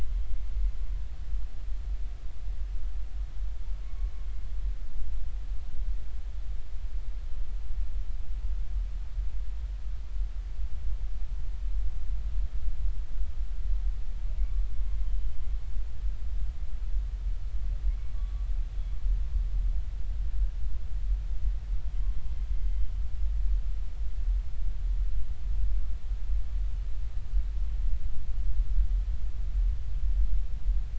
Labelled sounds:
0.1	0.4	humpback whale, 3.1 to 3.3 kHz
3.8	4.1	humpback whale, 1.1 to 1.2 kHz
15.1	15.5	humpback whale, 3.0 to 3.1 kHz
18.2	18.5	humpback whale, 1.1 to 1.2 kHz

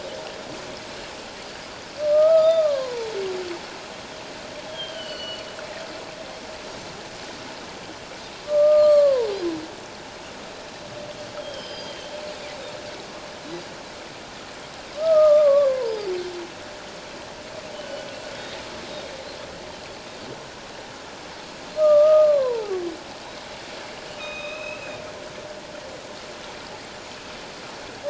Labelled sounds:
2.0	3.1	humpback whale, 0.88 to 4.9 kHz
4.7	5.5	humpback whale, 2.8 to 4.8 kHz
8.4	9.3	humpback whale, 0.88 to 4.6 kHz
11.4	12.1	humpback whale, 2.9 to 5.2 kHz
13.4	13.7	Pacific white-sided dolphin, 3.8 to 4.0 kHz
14.9	16.1	humpback whale, 0.78 to 1.3 kHz
15.8	16.1	Pacific white-sided dolphin, 4.4 to 5.2 kHz
17.7	18.0	humpback whale, 2.9 to 3.1 kHz
21.8	22.8	humpback whale, 0.78 to 1.3 kHz
24.2	25.0	humpback whale, 2.3 to 3.9 kHz

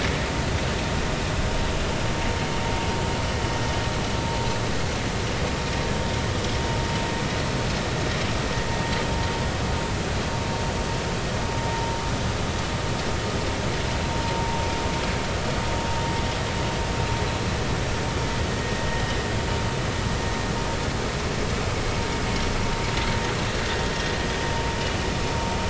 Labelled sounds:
18.5	18.9	vessel noise, 1.8 to 1.9 kHz

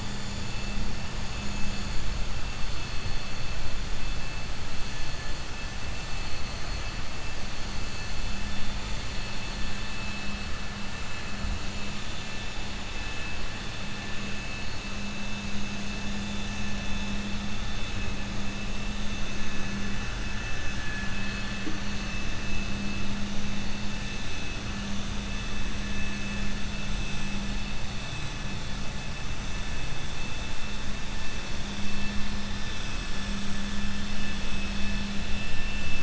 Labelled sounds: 20.7	21.6	vessel noise, 1.1 to 4.4 kHz
35.4	36.0	vessel noise, 1.8 to 3.0 kHz

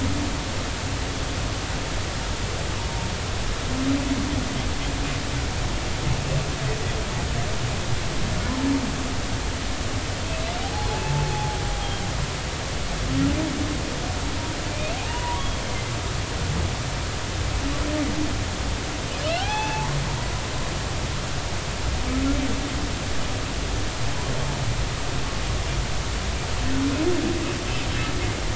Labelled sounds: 10.9	11.6	humpback whale, 0.80 to 0.93 kHz
14.7	15.9	humpback whale, 0.80 to 2.6 kHz
19.3	19.9	humpback whale, 0.80 to 3.5 kHz

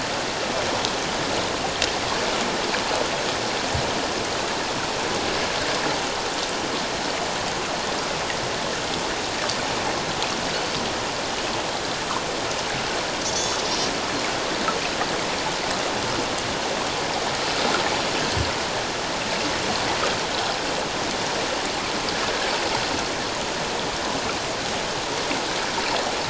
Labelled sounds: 13.2	13.6	Pacific white-sided dolphin, 3.4 to 6.0 kHz

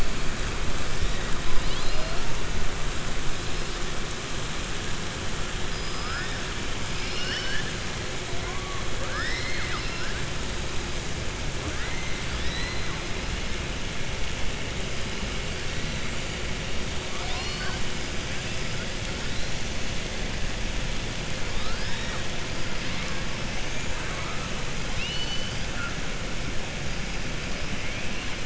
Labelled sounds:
6.9	7.7	killer whale, southern resident, 1.5 to 5.9 kHz
8.9	10.1	killer whale, southern resident, 0.55 to 5.6 kHz
17.0	17.8	killer whale, southern resident, 0.72 to 5.8 kHz
24.9	25.6	killer whale, southern resident, 2.5 to 6.0 kHz

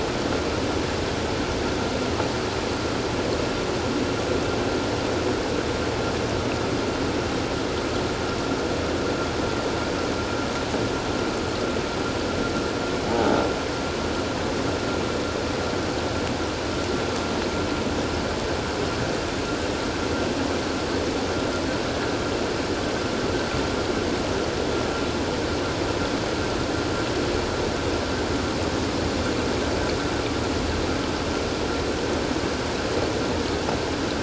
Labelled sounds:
13.1	13.4	croaking sound likely from a nearby submerged object, 0.78 to 0.94 kHz

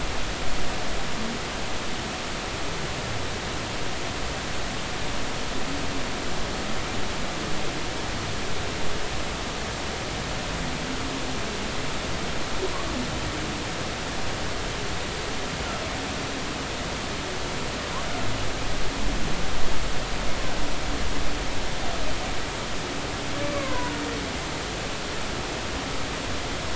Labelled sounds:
23.5	24.0	humpback whale, 0.93 to 1.6 kHz

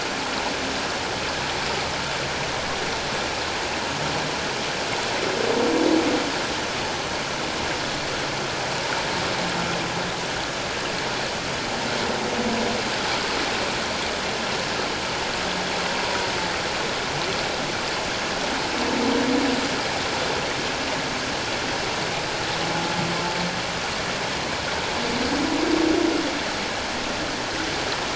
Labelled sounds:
16.0	16.3	humpback whale, 0.91 to 1.0 kHz

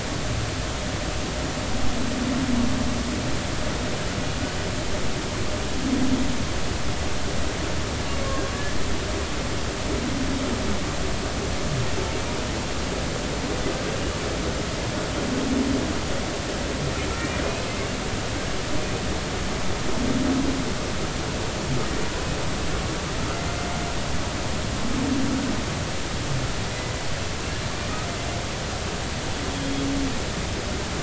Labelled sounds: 17.2	17.4	humpback whale, 2.3 to 2.4 kHz

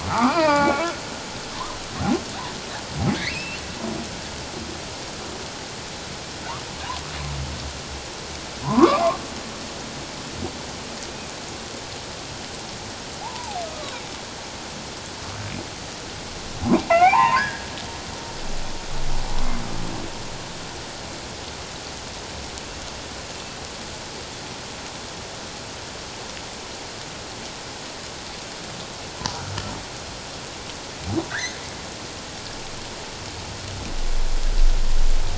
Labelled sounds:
0.1	0.9	humpback whale, 0.78 to 2.6 kHz
3.1	3.6	humpback whale, 1.6 to 2.9 kHz
8.6	9.2	humpback whale, 0.81 to 1.2 kHz
13.2	14.0	humpback whale, 0.78 to 1.3 kHz
16.9	17.7	humpback whale, 0.78 to 2.5 kHz
31.3	31.6	humpback whale, 1.3 to 2.2 kHz

